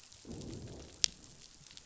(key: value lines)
label: biophony, growl
recorder: SoundTrap 500